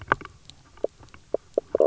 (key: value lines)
label: biophony, knock croak
recorder: SoundTrap 300